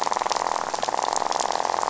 {"label": "biophony, rattle", "recorder": "SoundTrap 500"}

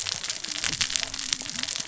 {"label": "biophony, cascading saw", "recorder": "SoundTrap 600 or HydroMoth"}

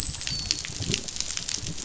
{"label": "biophony, dolphin", "recorder": "SoundTrap 500"}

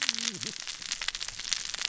{"label": "biophony, cascading saw", "recorder": "SoundTrap 600 or HydroMoth"}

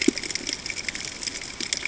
{"label": "ambient", "recorder": "HydroMoth"}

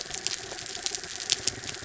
{"label": "anthrophony, mechanical", "recorder": "SoundTrap 300"}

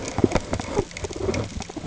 {"label": "ambient", "recorder": "HydroMoth"}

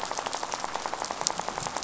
{"label": "biophony, rattle", "recorder": "SoundTrap 500"}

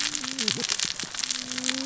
{"label": "biophony, cascading saw", "recorder": "SoundTrap 600 or HydroMoth"}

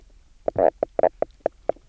{"label": "biophony, knock croak", "recorder": "SoundTrap 300"}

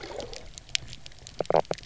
{"label": "biophony", "recorder": "SoundTrap 300"}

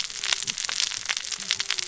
{"label": "biophony, cascading saw", "recorder": "SoundTrap 600 or HydroMoth"}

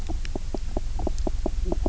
{"label": "biophony, knock croak", "recorder": "SoundTrap 300"}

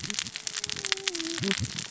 {"label": "biophony, cascading saw", "recorder": "SoundTrap 600 or HydroMoth"}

